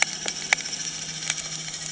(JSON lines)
{"label": "anthrophony, boat engine", "recorder": "HydroMoth"}